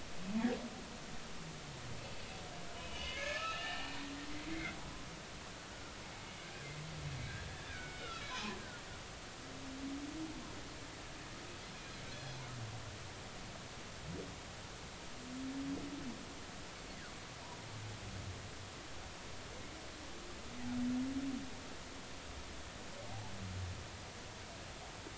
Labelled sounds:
2.7	3.9	humpback whale, 1.2 to 3.1 kHz
4.5	4.8	humpback whale, 1.9 to 2.2 kHz
7.7	8.6	humpback whale, 0.80 to 4.0 kHz

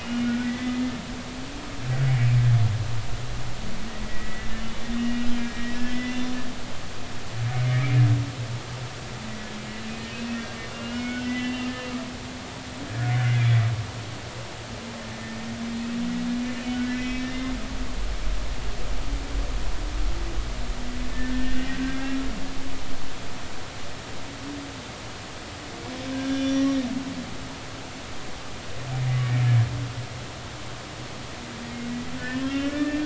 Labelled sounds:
0.0	0.8	humpback whale, 1.4 to 2.9 kHz
4.0	5.2	humpback whale, 1.8 to 3.0 kHz
5.5	6.3	humpback whale, 1.9 to 3.6 kHz
7.4	8.0	humpback whale, 2.1 to 2.4 kHz
10.7	11.7	humpback whale, 1.4 to 3.1 kHz
16.6	17.3	humpback whale, 2.0 to 3.1 kHz
21.4	22.2	humpback whale, 1.5 to 2.9 kHz
26.3	26.8	humpback whale, 3.4 to 5.8 kHz
29.2	29.5	humpback whale, 2.2 to 2.4 kHz
32.2	33.0	humpback whale, 1.3 to 2.9 kHz

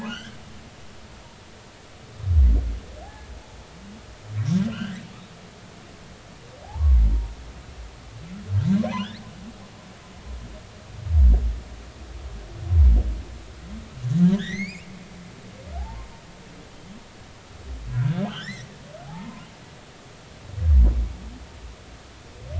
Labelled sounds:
0.0	0.4	humpback whale, 1.3 to 3.5 kHz
4.7	5.0	humpback whale, 1.3 to 3.3 kHz
6.6	7.0	humpback whale, 0.80 to 1.2 kHz
8.9	9.2	humpback whale, 2.7 to 4.6 kHz
14.2	14.9	humpback whale, 1.5 to 6.9 kHz
15.8	16.1	humpback whale, 0.80 to 1.1 kHz
17.9	18.7	humpback whale, 1.2 to 3.7 kHz
19.0	19.5	humpback whale, 0.80 to 1.1 kHz

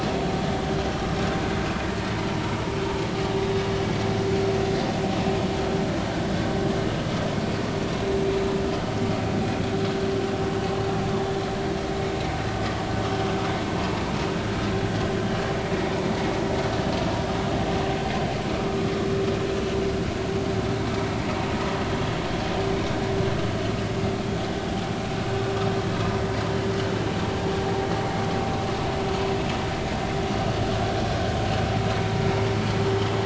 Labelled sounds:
25.8	26.1	vessel noise, 3.8 to 4.0 kHz

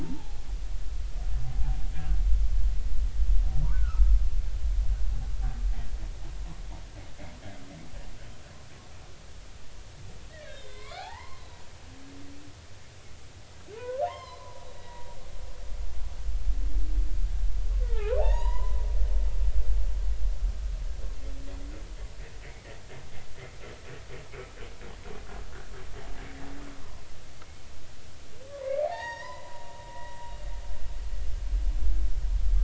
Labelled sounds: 0.0	0.4	humpback whale, 0.80 to 0.96 kHz
3.7	4.0	humpback whale, 1.2 to 1.6 kHz
10.3	11.5	humpback whale, 0.80 to 4.5 kHz
13.8	15.1	humpback whale, 0.80 to 5.4 kHz
17.8	18.8	humpback whale, 0.80 to 4.0 kHz
28.5	30.2	humpback whale, 0.80 to 5.7 kHz

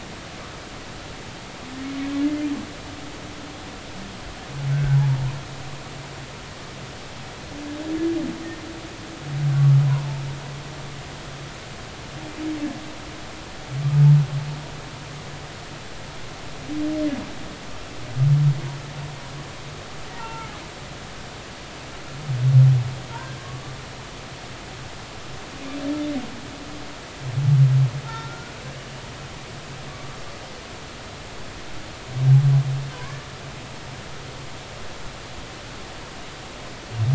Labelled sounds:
4.7	5.0	humpback whale, 1.4 to 1.6 kHz
20.1	20.5	humpback whale, 0.86 to 1.4 kHz
23.1	23.8	humpback whale, 1.0 to 1.7 kHz
28.0	28.5	humpback whale, 0.86 to 1.5 kHz
29.9	30.2	humpback whale, 1.1 to 1.2 kHz
32.9	33.2	humpback whale, 0.93 to 1.2 kHz

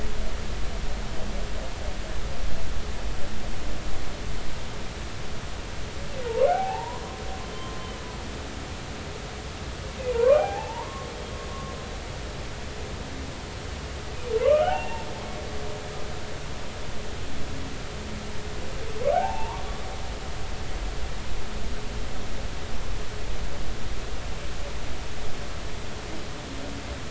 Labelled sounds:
6.5	7.7	humpback whale, 0.80 to 3.2 kHz
10.1	11.1	humpback whale, 0.80 to 2.5 kHz
14.4	15.1	humpback whale, 0.80 to 2.8 kHz
19.1	19.6	humpback whale, 0.80 to 2.8 kHz

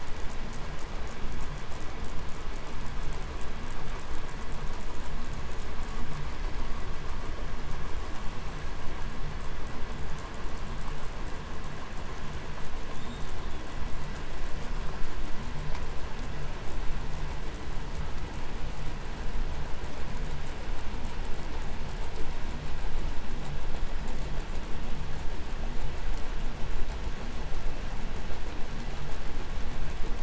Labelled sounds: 12.8	14.0	killer whale, 2.9 to 8.0 kHz

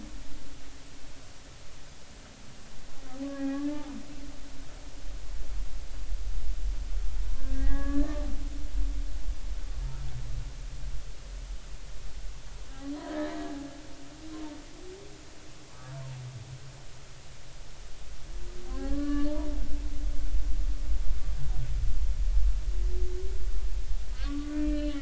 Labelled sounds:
3.3	3.8	humpback whale, 0.80 to 1.8 kHz
7.3	8.2	humpback whale, 0.80 to 2.0 kHz
13.0	13.3	humpback whale, 1.6 to 2.0 kHz
15.7	15.9	humpback whale, 1.1 to 1.3 kHz
18.7	19.5	humpback whale, 0.80 to 1.8 kHz
24.1	24.9	humpback whale, 1.1 to 3.0 kHz

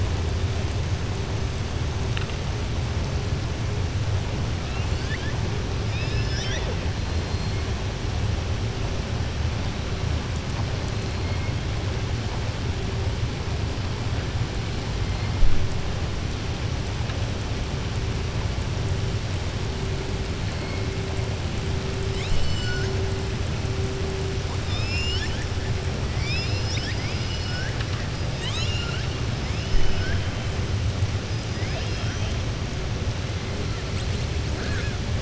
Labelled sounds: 5.8	6.7	killer whale, southern resident, 0.62 to 5.9 kHz
22.0	22.9	killer whale, southern resident, 1.5 to 7.8 kHz
24.6	25.5	killer whale, southern resident, 1.6 to 7.3 kHz
26.1	28.0	killer whale, southern resident, 1.3 to 7.1 kHz
31.5	32.3	killer whale, southern resident, 1.4 to 6.1 kHz
34.5	35.0	killer whale, southern resident, 0.49 to 4.4 kHz

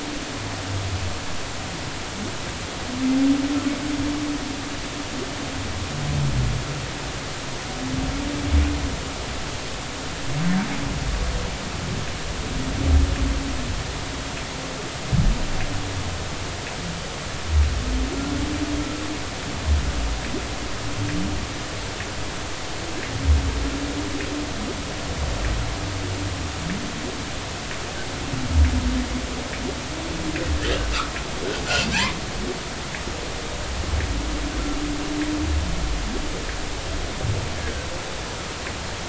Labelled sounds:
37.6	37.9	humpback whale, 1.5 to 1.7 kHz

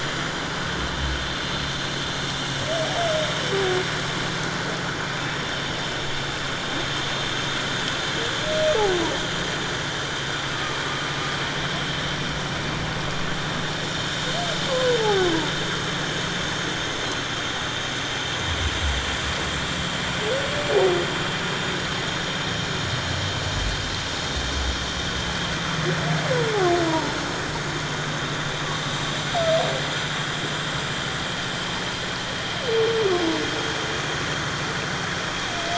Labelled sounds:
14.7	15.3	humpback whale, 0.78 to 1.2 kHz
26.9	27.1	humpback whale, 0.84 to 1.0 kHz
28.9	29.1	humpback whale, 5.8 to 6.1 kHz

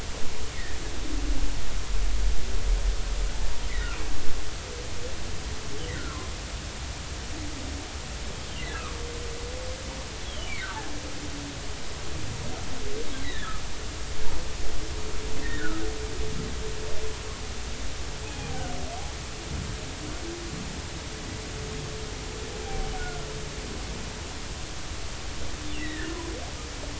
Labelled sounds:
10.2	10.5	humpback whale, 2.8 to 3.5 kHz
13.2	13.6	humpback whale, 1.5 to 4.0 kHz
15.4	15.8	humpback whale, 1.2 to 2.1 kHz
18.2	18.7	humpback whale, 0.80 to 2.6 kHz
23.0	23.2	humpback whale, 1.4 to 1.5 kHz
25.8	26.2	humpback whale, 1.4 to 2.1 kHz

